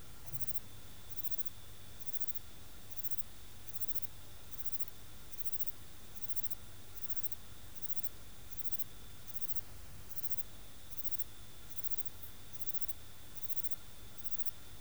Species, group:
Platycleis albopunctata
Orthoptera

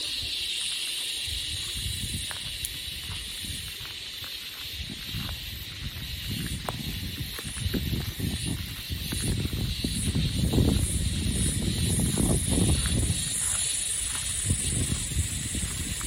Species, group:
Aleeta curvicosta
Cicadidae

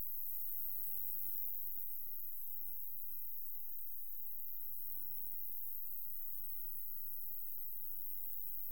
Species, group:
Ruspolia nitidula
Orthoptera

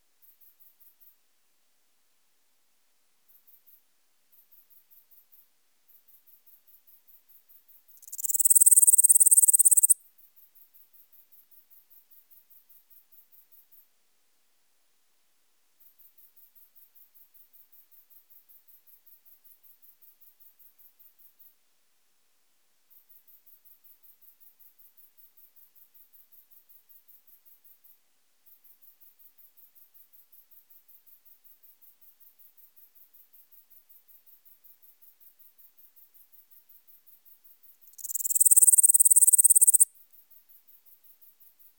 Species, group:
Pholidoptera littoralis
Orthoptera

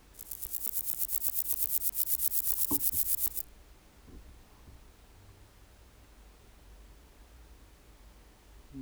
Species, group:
Chorthippus corsicus
Orthoptera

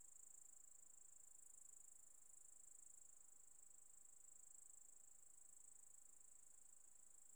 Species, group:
Tettigonia cantans
Orthoptera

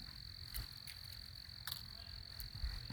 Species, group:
Eunemobius carolinus
Orthoptera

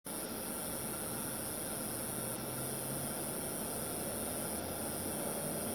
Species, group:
Neoconocephalus triops
Orthoptera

